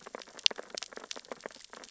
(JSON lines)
{"label": "biophony, sea urchins (Echinidae)", "recorder": "SoundTrap 600 or HydroMoth"}